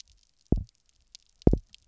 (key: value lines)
label: biophony, double pulse
recorder: SoundTrap 300